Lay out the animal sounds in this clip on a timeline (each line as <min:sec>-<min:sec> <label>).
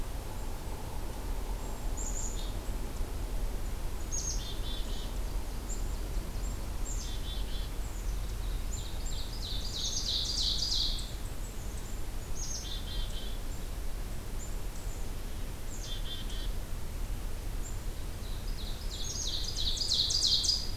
0:01.4-0:02.7 Black-capped Chickadee (Poecile atricapillus)
0:03.9-0:05.2 Black-capped Chickadee (Poecile atricapillus)
0:05.0-0:07.1 Nashville Warbler (Leiothlypis ruficapilla)
0:06.7-0:15.1 Black-capped Chickadee (Poecile atricapillus)
0:08.6-0:11.2 Ovenbird (Seiurus aurocapilla)
0:15.6-0:16.6 Black-capped Chickadee (Poecile atricapillus)
0:18.3-0:20.8 Ovenbird (Seiurus aurocapilla)
0:18.8-0:19.6 Black-capped Chickadee (Poecile atricapillus)